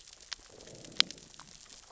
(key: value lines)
label: biophony, growl
recorder: SoundTrap 600 or HydroMoth